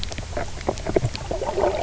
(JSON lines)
{"label": "biophony, knock croak", "recorder": "SoundTrap 300"}